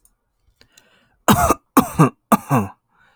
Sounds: Cough